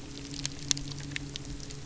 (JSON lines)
{"label": "anthrophony, boat engine", "recorder": "SoundTrap 300"}